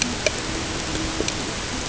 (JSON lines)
{"label": "ambient", "recorder": "HydroMoth"}